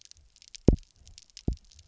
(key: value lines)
label: biophony, double pulse
recorder: SoundTrap 300